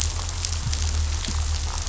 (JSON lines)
{"label": "anthrophony, boat engine", "recorder": "SoundTrap 500"}